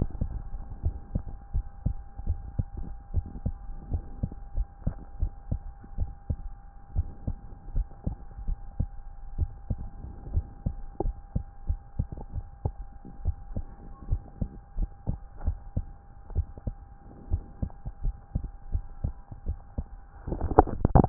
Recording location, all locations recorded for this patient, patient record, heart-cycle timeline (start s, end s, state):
tricuspid valve (TV)
aortic valve (AV)+pulmonary valve (PV)+tricuspid valve (TV)+mitral valve (MV)
#Age: Adolescent
#Sex: Male
#Height: 136.0 cm
#Weight: 42.4 kg
#Pregnancy status: False
#Murmur: Absent
#Murmur locations: nan
#Most audible location: nan
#Systolic murmur timing: nan
#Systolic murmur shape: nan
#Systolic murmur grading: nan
#Systolic murmur pitch: nan
#Systolic murmur quality: nan
#Diastolic murmur timing: nan
#Diastolic murmur shape: nan
#Diastolic murmur grading: nan
#Diastolic murmur pitch: nan
#Diastolic murmur quality: nan
#Outcome: Normal
#Campaign: 2015 screening campaign
0.00	4.31	unannotated
4.31	4.54	diastole
4.54	4.68	S1
4.68	4.84	systole
4.84	4.98	S2
4.98	5.20	diastole
5.20	5.32	S1
5.32	5.48	systole
5.48	5.62	S2
5.62	5.96	diastole
5.96	6.14	S1
6.14	6.25	systole
6.25	6.38	S2
6.38	6.92	diastole
6.92	7.08	S1
7.08	7.26	systole
7.26	7.40	S2
7.40	7.70	diastole
7.70	7.88	S1
7.88	8.04	systole
8.04	8.16	S2
8.16	8.40	diastole
8.40	8.56	S1
8.56	8.76	systole
8.76	8.90	S2
8.90	9.35	diastole
9.35	9.49	S1
9.49	9.68	systole
9.68	9.80	S2
9.80	10.30	diastole
10.30	10.44	S1
10.44	10.64	systole
10.64	10.78	S2
10.78	11.04	diastole
11.04	11.16	S1
11.16	11.34	systole
11.34	11.44	S2
11.44	11.68	diastole
11.68	11.80	S1
11.80	11.98	systole
11.98	12.08	S2
12.08	12.34	diastole
12.34	12.46	S1
12.46	12.60	systole
12.60	12.71	S2
12.71	13.22	diastole
13.22	13.36	S1
13.36	13.53	systole
13.53	13.65	S2
13.65	14.06	diastole
14.06	14.22	S1
14.22	14.40	systole
14.40	14.50	S2
14.50	14.76	diastole
14.76	14.90	S1
14.90	15.06	systole
15.06	15.18	S2
15.18	15.42	diastole
15.42	15.60	S1
15.60	15.75	systole
15.75	15.89	S2
15.89	16.34	diastole
16.34	16.48	S1
16.48	16.66	systole
16.66	16.74	S2
16.74	17.29	diastole
17.29	17.42	S1
17.42	17.58	systole
17.58	17.70	S2
17.70	18.02	diastole
18.02	18.16	S1
18.16	18.34	systole
18.34	18.50	S2
18.50	18.72	diastole
18.72	18.86	S1
18.86	19.02	systole
19.02	19.14	S2
19.14	19.46	diastole
19.46	19.58	S1
19.58	19.78	systole
19.78	19.92	S2
19.92	20.15	diastole
20.15	21.09	unannotated